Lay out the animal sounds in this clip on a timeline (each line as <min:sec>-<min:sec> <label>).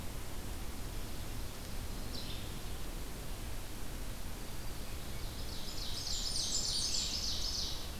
0:01.8-0:02.6 Red-eyed Vireo (Vireo olivaceus)
0:04.8-0:08.0 Ovenbird (Seiurus aurocapilla)
0:05.6-0:07.4 Blackburnian Warbler (Setophaga fusca)